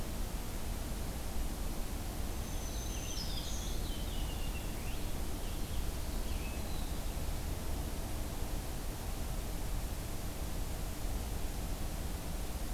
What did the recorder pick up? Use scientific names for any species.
Setophaga virens, Haemorhous purpureus